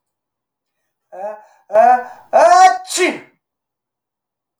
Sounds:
Sneeze